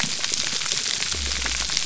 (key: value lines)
label: biophony
recorder: SoundTrap 300